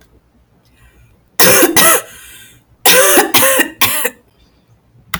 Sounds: Cough